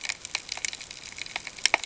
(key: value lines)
label: ambient
recorder: HydroMoth